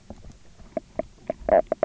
{"label": "biophony, knock croak", "recorder": "SoundTrap 300"}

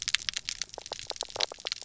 {"label": "biophony, knock croak", "recorder": "SoundTrap 300"}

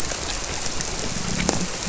{"label": "biophony", "recorder": "SoundTrap 300"}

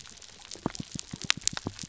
{"label": "biophony, pulse", "recorder": "SoundTrap 300"}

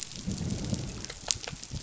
{"label": "biophony, growl", "recorder": "SoundTrap 500"}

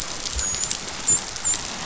{"label": "biophony, dolphin", "recorder": "SoundTrap 500"}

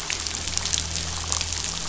{"label": "anthrophony, boat engine", "recorder": "SoundTrap 500"}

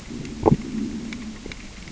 {"label": "biophony, growl", "recorder": "SoundTrap 600 or HydroMoth"}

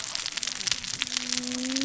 {"label": "biophony, cascading saw", "recorder": "SoundTrap 600 or HydroMoth"}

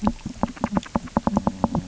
{"label": "biophony, knock", "recorder": "SoundTrap 300"}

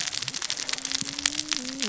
{"label": "biophony, cascading saw", "recorder": "SoundTrap 600 or HydroMoth"}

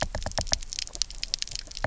{"label": "biophony, knock", "recorder": "SoundTrap 300"}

